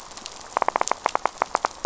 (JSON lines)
{"label": "biophony, knock", "recorder": "SoundTrap 500"}